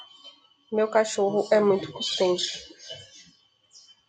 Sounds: Throat clearing